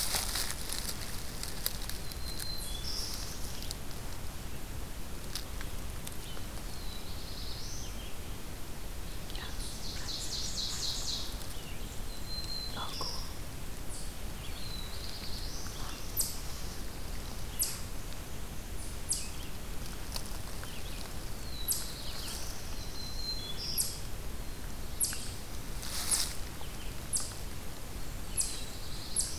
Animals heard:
Ovenbird (Seiurus aurocapilla), Eastern Chipmunk (Tamias striatus), Black-throated Blue Warbler (Setophaga caerulescens), Black-throated Green Warbler (Setophaga virens)

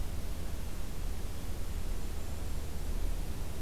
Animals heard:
Golden-crowned Kinglet (Regulus satrapa)

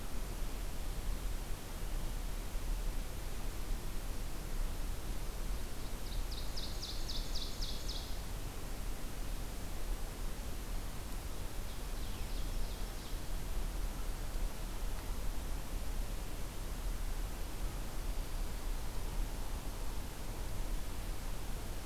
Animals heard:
Ovenbird (Seiurus aurocapilla)

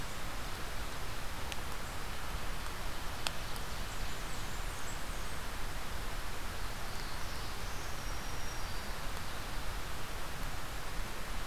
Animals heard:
Blackburnian Warbler (Setophaga fusca), Black-throated Green Warbler (Setophaga virens), Black-throated Blue Warbler (Setophaga caerulescens)

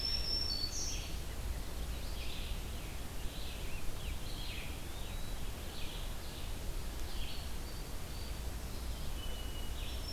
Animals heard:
Black-throated Green Warbler (Setophaga virens), Song Sparrow (Melospiza melodia), Eastern Wood-Pewee (Contopus virens), Red-eyed Vireo (Vireo olivaceus)

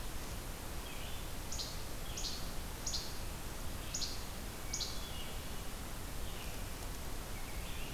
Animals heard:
Hermit Thrush (Catharus guttatus), Red-eyed Vireo (Vireo olivaceus), Least Flycatcher (Empidonax minimus)

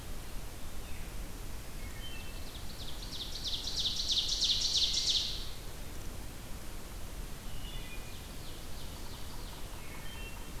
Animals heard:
Veery (Catharus fuscescens), Ovenbird (Seiurus aurocapilla), Wood Thrush (Hylocichla mustelina)

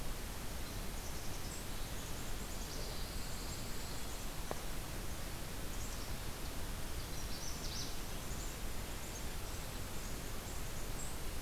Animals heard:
Black-capped Chickadee (Poecile atricapillus), Magnolia Warbler (Setophaga magnolia), Pine Warbler (Setophaga pinus)

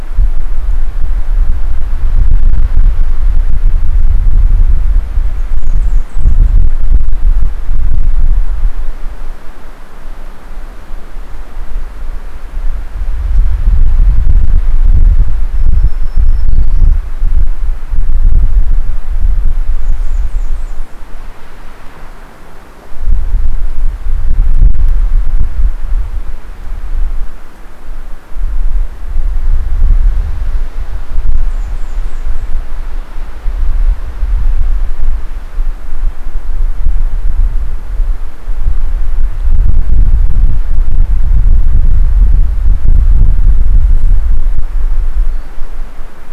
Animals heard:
Black-throated Green Warbler (Setophaga virens), Blackburnian Warbler (Setophaga fusca)

